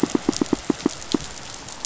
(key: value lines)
label: biophony, pulse
recorder: SoundTrap 500